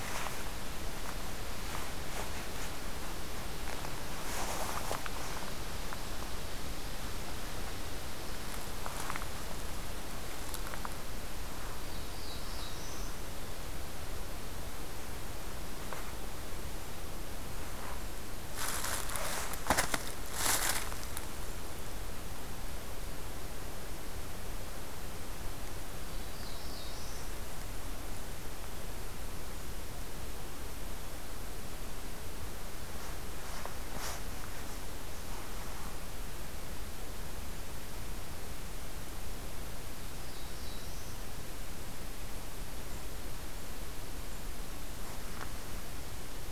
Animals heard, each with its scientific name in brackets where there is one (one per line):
Black-throated Blue Warbler (Setophaga caerulescens)